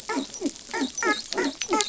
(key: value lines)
label: biophony, dolphin
recorder: SoundTrap 500